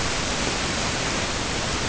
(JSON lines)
{"label": "ambient", "recorder": "HydroMoth"}